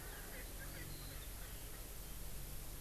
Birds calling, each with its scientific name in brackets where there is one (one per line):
Erckel's Francolin (Pternistis erckelii)